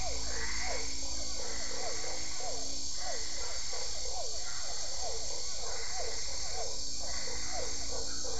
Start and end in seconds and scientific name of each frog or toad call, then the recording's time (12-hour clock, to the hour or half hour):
0.0	8.3	Boana albopunctata
0.0	8.3	Boana lundii
0.1	8.3	Physalaemus cuvieri
7pm